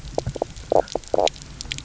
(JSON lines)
{"label": "biophony, knock croak", "recorder": "SoundTrap 300"}